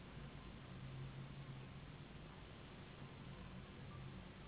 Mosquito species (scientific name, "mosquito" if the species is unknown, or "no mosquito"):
Anopheles gambiae s.s.